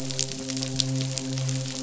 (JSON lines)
{"label": "biophony, midshipman", "recorder": "SoundTrap 500"}